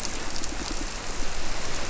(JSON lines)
{"label": "biophony, squirrelfish (Holocentrus)", "recorder": "SoundTrap 300"}